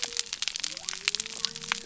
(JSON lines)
{"label": "biophony", "recorder": "SoundTrap 300"}